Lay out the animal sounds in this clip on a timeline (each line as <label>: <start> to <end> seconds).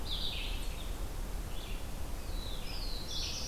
Red-eyed Vireo (Vireo olivaceus): 0.0 to 3.5 seconds
Black-throated Blue Warbler (Setophaga caerulescens): 2.1 to 3.5 seconds